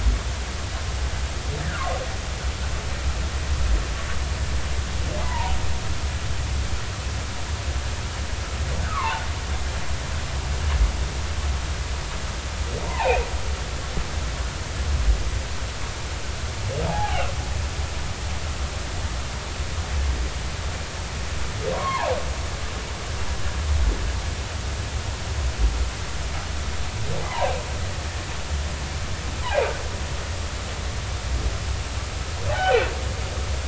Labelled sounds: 1.6	1.8	humpback whale, 1.3 to 2.0 kHz
5.2	5.6	humpback whale, 0.80 to 1.1 kHz
8.9	9.2	humpback whale, 0.80 to 1.3 kHz
12.8	13.3	humpback whale, 0.80 to 2.7 kHz
16.9	17.3	humpback whale, 0.80 to 0.96 kHz
21.7	22.2	humpback whale, 0.80 to 2.3 kHz
27.3	27.5	humpback whale, 0.80 to 1.2 kHz
32.5	32.8	humpback whale, 0.80 to 3.1 kHz

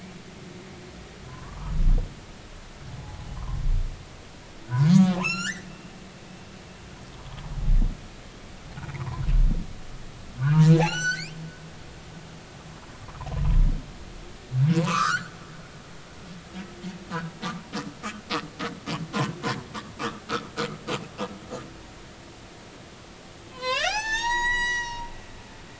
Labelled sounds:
1.3	1.7	humpback whale, 0.90 to 1.3 kHz
3.0	3.3	humpback whale, 0.80 to 1.0 kHz
4.7	5.7	humpback whale, 0.83 to 8.0 kHz
8.9	9.2	humpback whale, 0.90 to 1.3 kHz
10.7	11.4	humpback whale, 0.80 to 7.8 kHz
14.8	15.3	humpback whale, 0.86 to 4.6 kHz
20.0	20.2	humpback whale, 1.1 to 1.4 kHz
23.5	25.1	humpback whale, 0.80 to 7.8 kHz

